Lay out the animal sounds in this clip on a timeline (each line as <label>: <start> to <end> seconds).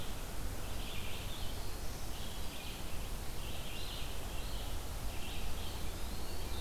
Red-eyed Vireo (Vireo olivaceus): 0.0 to 6.6 seconds
Black-throated Blue Warbler (Setophaga caerulescens): 0.9 to 2.2 seconds
Eastern Wood-Pewee (Contopus virens): 5.2 to 6.6 seconds